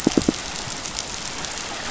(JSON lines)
{"label": "biophony", "recorder": "SoundTrap 500"}